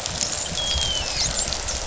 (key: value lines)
label: biophony, dolphin
recorder: SoundTrap 500